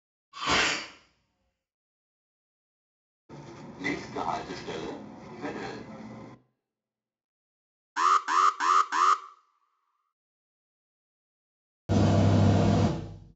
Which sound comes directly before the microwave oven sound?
alarm